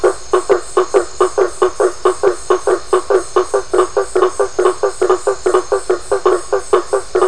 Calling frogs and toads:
Boana faber (Hylidae)

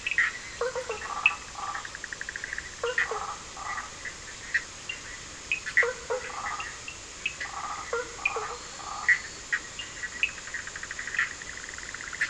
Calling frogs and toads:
Sphaenorhynchus surdus (Hylidae), Boana faber (Hylidae), Boana prasina (Hylidae), Elachistocleis bicolor (Microhylidae)

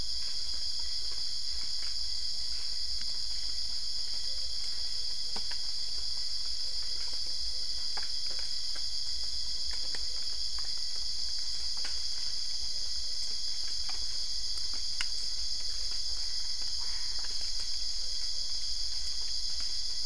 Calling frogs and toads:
Boana albopunctata (Hylidae)

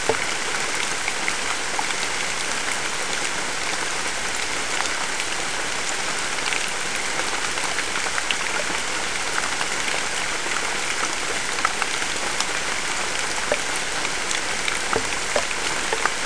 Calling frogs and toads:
none

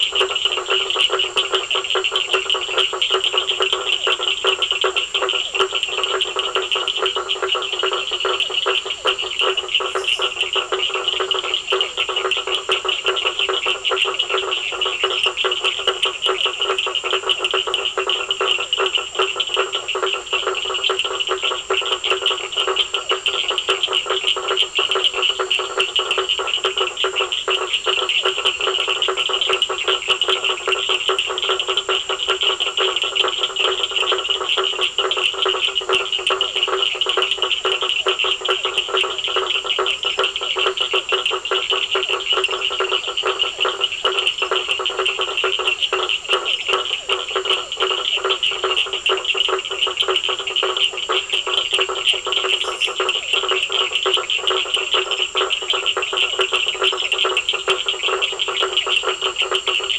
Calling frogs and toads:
Elachistocleis bicolor (Microhylidae), Boana faber (Hylidae), Sphaenorhynchus surdus (Hylidae), Physalaemus cuvieri (Leptodactylidae), Dendropsophus minutus (Hylidae)

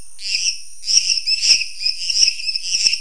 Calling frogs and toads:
Dendropsophus minutus (Hylidae)

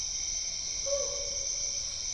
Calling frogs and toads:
none

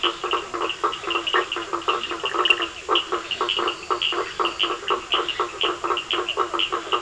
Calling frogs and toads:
Boana faber (Hylidae), Sphaenorhynchus surdus (Hylidae), Leptodactylus latrans (Leptodactylidae)

